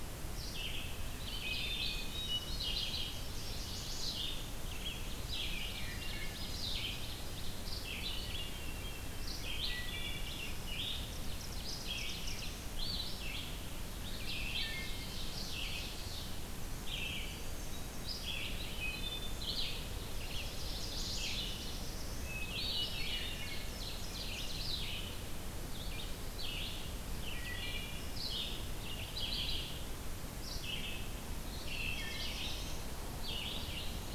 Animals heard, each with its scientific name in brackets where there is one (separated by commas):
Red-eyed Vireo (Vireo olivaceus), Hermit Thrush (Catharus guttatus), Wood Thrush (Hylocichla mustelina), Black-throated Blue Warbler (Setophaga caerulescens), Chestnut-sided Warbler (Setophaga pensylvanica), Ovenbird (Seiurus aurocapilla)